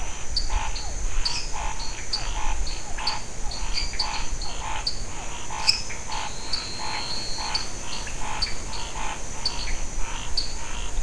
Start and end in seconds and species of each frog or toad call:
0.0	11.0	Scinax fuscovarius
0.4	11.0	dwarf tree frog
0.7	5.4	Physalaemus cuvieri
1.9	2.1	Pithecopus azureus
5.5	6.0	lesser tree frog
6.0	7.6	Elachistocleis matogrosso

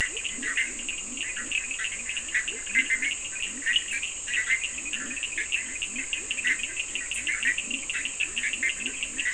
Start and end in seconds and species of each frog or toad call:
0.0	9.3	Bischoff's tree frog
0.0	9.3	Cochran's lime tree frog
0.2	9.3	Leptodactylus latrans

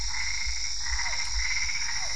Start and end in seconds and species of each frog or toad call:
0.0	2.1	Boana albopunctata
0.9	2.1	Physalaemus cuvieri

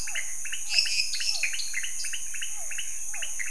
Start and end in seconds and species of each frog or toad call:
0.0	2.3	lesser tree frog
0.0	3.5	dwarf tree frog
0.0	3.5	pointedbelly frog
0.0	3.5	Physalaemus cuvieri

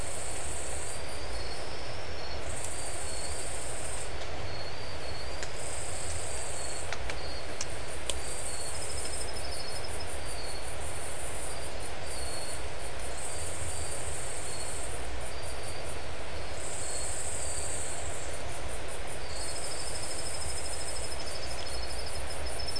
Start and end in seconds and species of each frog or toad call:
none

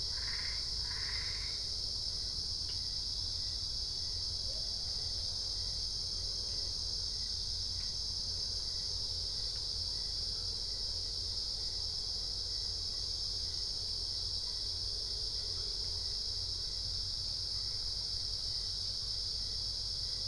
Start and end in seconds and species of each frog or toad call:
0.0	1.8	Boana albopunctata

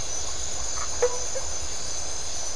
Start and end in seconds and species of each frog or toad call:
0.7	0.9	Phyllomedusa distincta
1.0	1.5	blacksmith tree frog

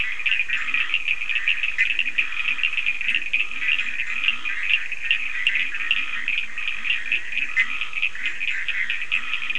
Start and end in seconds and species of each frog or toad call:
0.0	9.5	Bischoff's tree frog
0.0	9.5	Scinax perereca
0.0	9.5	Cochran's lime tree frog
0.5	9.5	Leptodactylus latrans

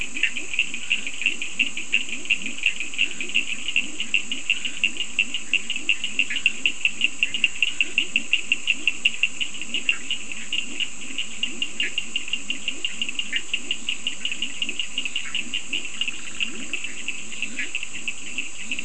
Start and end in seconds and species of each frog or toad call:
0.0	18.8	Cochran's lime tree frog
0.1	18.8	Leptodactylus latrans
0.8	1.3	Scinax perereca
2.8	8.1	Scinax perereca
6.3	6.6	Bischoff's tree frog
15.2	16.9	Bischoff's tree frog

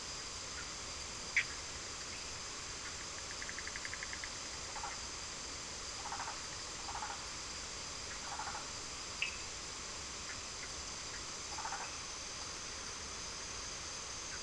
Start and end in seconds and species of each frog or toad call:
1.3	1.7	Cochran's lime tree frog
2.5	4.5	Bischoff's tree frog
4.5	9.0	Burmeister's tree frog
9.1	9.6	Cochran's lime tree frog

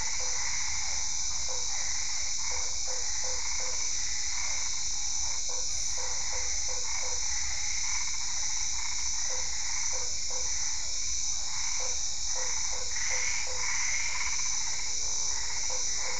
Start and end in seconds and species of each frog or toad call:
0.0	0.6	Usina tree frog
0.0	16.1	Boana albopunctata
0.0	16.1	Physalaemus cuvieri
1.5	3.9	Usina tree frog
5.3	7.4	Usina tree frog
9.2	10.6	Usina tree frog
11.8	13.8	Usina tree frog
15.6	16.1	Usina tree frog

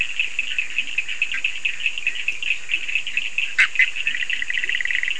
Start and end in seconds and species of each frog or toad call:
0.0	5.1	Leptodactylus latrans
3.5	5.1	Bischoff's tree frog

